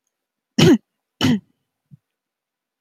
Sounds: Throat clearing